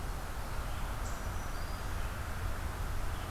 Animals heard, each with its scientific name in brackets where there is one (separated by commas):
Black-throated Green Warbler (Setophaga virens), Red-eyed Vireo (Vireo olivaceus)